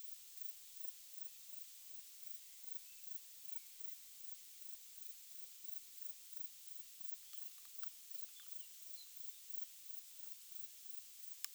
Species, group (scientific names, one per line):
Platycleis albopunctata
Orthoptera